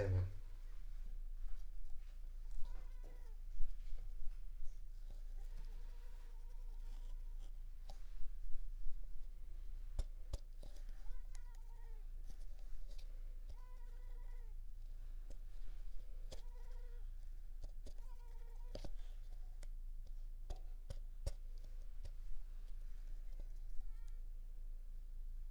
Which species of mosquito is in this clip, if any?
Culex pipiens complex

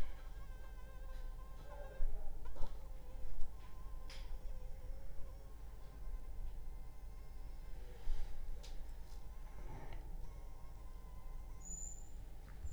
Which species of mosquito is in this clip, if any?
Anopheles funestus s.l.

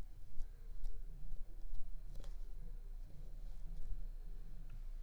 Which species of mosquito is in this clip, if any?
Aedes aegypti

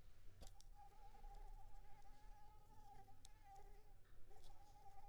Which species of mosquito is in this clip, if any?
Anopheles arabiensis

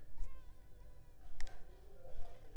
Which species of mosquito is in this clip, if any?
Culex pipiens complex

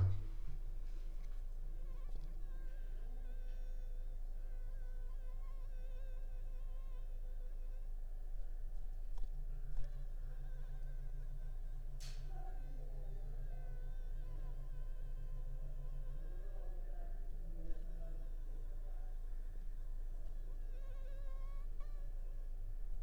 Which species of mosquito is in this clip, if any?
Anopheles funestus s.s.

